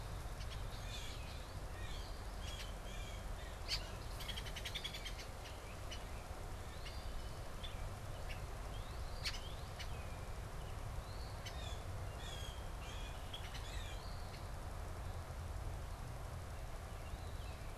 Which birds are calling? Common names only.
Red-winged Blackbird, Eastern Phoebe, Blue Jay, Northern Cardinal